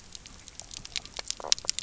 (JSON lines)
{"label": "biophony, knock croak", "recorder": "SoundTrap 300"}